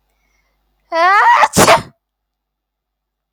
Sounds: Sneeze